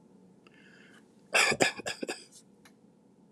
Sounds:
Cough